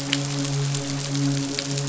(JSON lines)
{"label": "biophony, midshipman", "recorder": "SoundTrap 500"}